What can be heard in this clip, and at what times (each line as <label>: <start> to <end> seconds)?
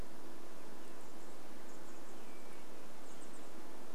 unidentified sound: 0 to 2 seconds
Chestnut-backed Chickadee call: 0 to 4 seconds
insect buzz: 0 to 4 seconds
Say's Phoebe song: 2 to 4 seconds